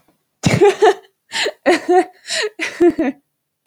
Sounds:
Laughter